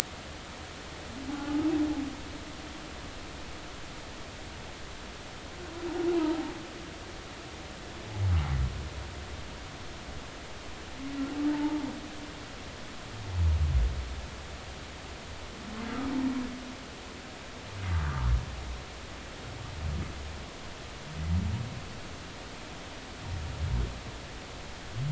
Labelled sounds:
1.4	1.7	humpback whale, 1.1 to 1.3 kHz
11.5	11.9	humpback whale, 0.83 to 1.0 kHz
17.9	18.3	humpback whale, 1.1 to 1.3 kHz

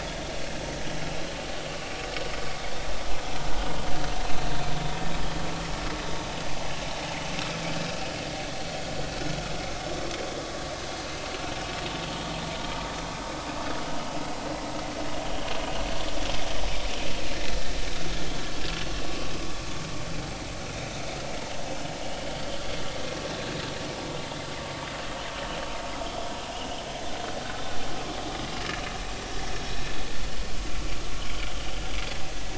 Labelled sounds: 19.3	19.6	vessel noise, 1.1 to 1.2 kHz

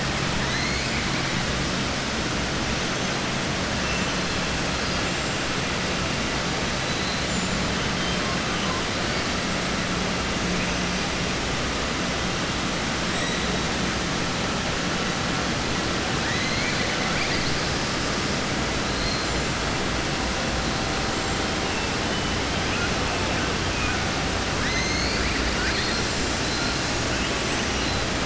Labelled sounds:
25.5	26.4	killer whale, southern resident, 1.5 to 8.0 kHz

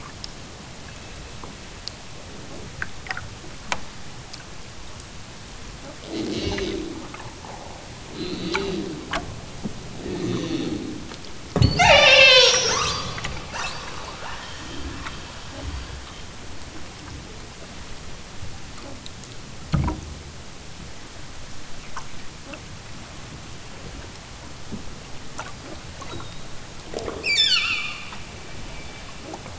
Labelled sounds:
6.0	7.2	killer whale, southern Alaska resident, 0 to 7.4 kHz
8.0	9.0	killer whale, southern Alaska resident, 0 to 4.8 kHz
10.0	11.1	killer whale, southern Alaska resident, 0 to 6.6 kHz
11.6	14.1	killer whale, southern Alaska resident, 0 to 8.0 kHz
27.2	28.3	killer whale, southern Alaska resident, 0.62 to 8.0 kHz

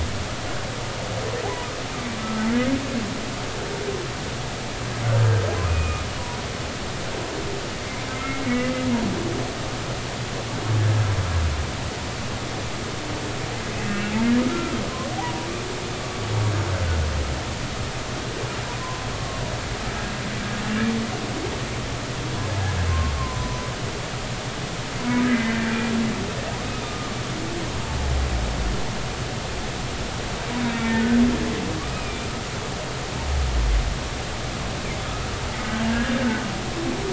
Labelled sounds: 2.2	2.4	humpback whale, 1.2 to 1.4 kHz
5.7	6.0	humpback whale, 2.4 to 2.6 kHz
8.1	8.7	humpback whale, 1.9 to 2.2 kHz
13.9	14.1	humpback whale, 2.6 to 2.8 kHz
15.1	15.5	humpback whale, 0.80 to 1.0 kHz
18.8	19.4	humpback whale, 0.96 to 1.2 kHz
22.9	23.7	humpback whale, 0.93 to 1.1 kHz
25.0	25.6	humpback whale, 0.93 to 2.1 kHz
26.8	27.1	humpback whale, 1.15 to 1.25 kHz
31.8	32.3	humpback whale, 1.1 to 2.6 kHz
35.6	35.9	humpback whale, 1.5 to 1.6 kHz

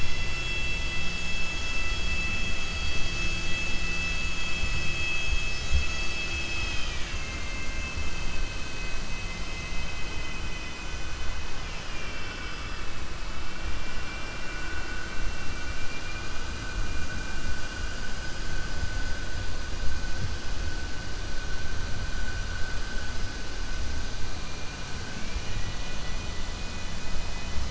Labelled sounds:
11.5	12.9	vessel noise, 1.4 to 3.5 kHz
15.7	16.4	vessel noise, 2.0 to 2.9 kHz
25.1	26.5	vessel noise, 1.5 to 3.8 kHz

